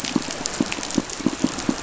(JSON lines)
{"label": "biophony, pulse", "recorder": "SoundTrap 500"}